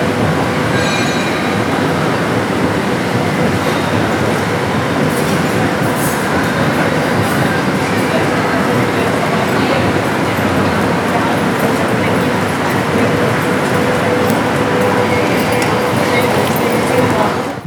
is there more than one human around?
yes